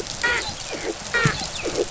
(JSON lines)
{"label": "biophony, dolphin", "recorder": "SoundTrap 500"}